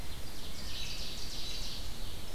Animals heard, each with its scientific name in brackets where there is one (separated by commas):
American Robin (Turdus migratorius), Ovenbird (Seiurus aurocapilla), Red-eyed Vireo (Vireo olivaceus)